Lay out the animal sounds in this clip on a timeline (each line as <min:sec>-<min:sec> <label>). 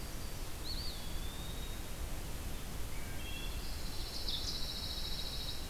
0:00.0-0:00.6 Yellow-rumped Warbler (Setophaga coronata)
0:00.5-0:02.1 Eastern Wood-Pewee (Contopus virens)
0:02.9-0:03.8 Wood Thrush (Hylocichla mustelina)
0:03.5-0:05.7 Pine Warbler (Setophaga pinus)
0:04.0-0:04.6 Ovenbird (Seiurus aurocapilla)